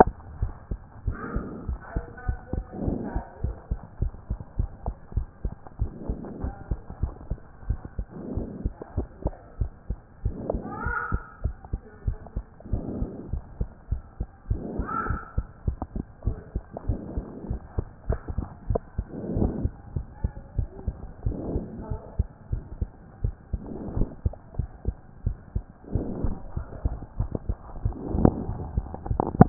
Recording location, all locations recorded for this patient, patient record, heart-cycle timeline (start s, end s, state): mitral valve (MV)
aortic valve (AV)+pulmonary valve (PV)+tricuspid valve (TV)+mitral valve (MV)
#Age: Child
#Sex: Male
#Height: 122.0 cm
#Weight: 24.2 kg
#Pregnancy status: False
#Murmur: Absent
#Murmur locations: nan
#Most audible location: nan
#Systolic murmur timing: nan
#Systolic murmur shape: nan
#Systolic murmur grading: nan
#Systolic murmur pitch: nan
#Systolic murmur quality: nan
#Diastolic murmur timing: nan
#Diastolic murmur shape: nan
#Diastolic murmur grading: nan
#Diastolic murmur pitch: nan
#Diastolic murmur quality: nan
#Outcome: Abnormal
#Campaign: 2014 screening campaign
0.00	0.40	unannotated
0.40	0.52	S1
0.52	0.70	systole
0.70	0.78	S2
0.78	1.06	diastole
1.06	1.18	S1
1.18	1.34	systole
1.34	1.44	S2
1.44	1.68	diastole
1.68	1.78	S1
1.78	1.94	systole
1.94	2.04	S2
2.04	2.26	diastole
2.26	2.38	S1
2.38	2.54	systole
2.54	2.64	S2
2.64	2.84	diastole
2.84	3.00	S1
3.00	3.14	systole
3.14	3.22	S2
3.22	3.42	diastole
3.42	3.56	S1
3.56	3.70	systole
3.70	3.80	S2
3.80	4.00	diastole
4.00	4.12	S1
4.12	4.30	systole
4.30	4.38	S2
4.38	4.58	diastole
4.58	4.70	S1
4.70	4.86	systole
4.86	4.94	S2
4.94	5.14	diastole
5.14	5.26	S1
5.26	5.44	systole
5.44	5.52	S2
5.52	5.80	diastole
5.80	5.92	S1
5.92	6.08	systole
6.08	6.18	S2
6.18	6.42	diastole
6.42	6.54	S1
6.54	6.70	systole
6.70	6.78	S2
6.78	7.02	diastole
7.02	7.12	S1
7.12	7.30	systole
7.30	7.38	S2
7.38	7.68	diastole
7.68	7.80	S1
7.80	7.98	systole
7.98	8.06	S2
8.06	8.34	diastole
8.34	8.48	S1
8.48	8.64	systole
8.64	8.72	S2
8.72	8.96	diastole
8.96	9.08	S1
9.08	9.24	systole
9.24	9.34	S2
9.34	9.60	diastole
9.60	9.70	S1
9.70	9.88	systole
9.88	9.98	S2
9.98	10.24	diastole
10.24	10.36	S1
10.36	10.52	systole
10.52	10.62	S2
10.62	10.84	diastole
10.84	10.96	S1
10.96	11.12	systole
11.12	11.22	S2
11.22	11.44	diastole
11.44	11.54	S1
11.54	11.72	systole
11.72	11.80	S2
11.80	12.06	diastole
12.06	12.18	S1
12.18	12.36	systole
12.36	12.44	S2
12.44	12.72	diastole
12.72	12.84	S1
12.84	12.98	systole
12.98	13.10	S2
13.10	13.32	diastole
13.32	13.42	S1
13.42	13.58	systole
13.58	13.68	S2
13.68	13.90	diastole
13.90	14.02	S1
14.02	14.18	systole
14.18	14.28	S2
14.28	14.48	diastole
14.48	14.62	S1
14.62	14.76	systole
14.76	14.86	S2
14.86	15.08	diastole
15.08	15.20	S1
15.20	15.36	systole
15.36	15.46	S2
15.46	15.66	diastole
15.66	15.78	S1
15.78	15.94	systole
15.94	16.04	S2
16.04	16.26	diastole
16.26	16.38	S1
16.38	16.54	systole
16.54	16.62	S2
16.62	16.88	diastole
16.88	17.00	S1
17.00	17.16	systole
17.16	17.24	S2
17.24	17.48	diastole
17.48	17.60	S1
17.60	17.76	systole
17.76	17.86	S2
17.86	18.08	diastole
18.08	18.20	S1
18.20	18.36	systole
18.36	18.46	S2
18.46	18.68	diastole
18.68	18.80	S1
18.80	18.96	systole
18.96	19.06	S2
19.06	19.34	diastole
19.34	19.45	S1
19.45	19.62	systole
19.62	19.72	S2
19.72	19.94	diastole
19.94	20.06	S1
20.06	20.22	systole
20.22	20.32	S2
20.32	20.56	diastole
20.56	20.68	S1
20.68	20.86	systole
20.86	20.96	S2
20.96	21.24	diastole
21.24	21.38	S1
21.38	21.52	systole
21.52	21.64	S2
21.64	21.90	diastole
21.90	22.00	S1
22.00	22.18	systole
22.18	22.28	S2
22.28	22.52	diastole
22.52	22.62	S1
22.62	22.80	systole
22.80	22.90	S2
22.90	23.22	diastole
23.22	23.34	S1
23.34	23.52	systole
23.52	23.62	S2
23.62	23.94	diastole
23.94	24.08	S1
24.08	24.24	systole
24.24	24.34	S2
24.34	24.58	diastole
24.58	24.68	S1
24.68	24.86	systole
24.86	24.94	S2
24.94	25.24	diastole
25.24	25.36	S1
25.36	25.54	systole
25.54	25.64	S2
25.64	25.94	diastole
25.94	26.06	S1
26.06	26.22	systole
26.22	26.36	S2
26.36	26.56	diastole
26.56	26.66	S1
26.66	26.84	systole
26.84	26.96	S2
26.96	27.18	diastole
27.18	27.30	S1
27.30	27.48	systole
27.48	27.58	S2
27.58	27.86	diastole
27.86	29.49	unannotated